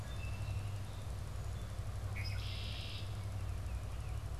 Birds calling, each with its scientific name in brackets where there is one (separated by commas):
Baltimore Oriole (Icterus galbula), Red-winged Blackbird (Agelaius phoeniceus)